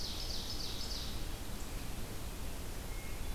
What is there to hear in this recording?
Ovenbird, Red-eyed Vireo, Hermit Thrush